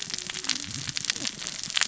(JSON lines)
{"label": "biophony, cascading saw", "recorder": "SoundTrap 600 or HydroMoth"}